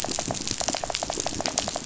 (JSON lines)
{"label": "biophony", "recorder": "SoundTrap 500"}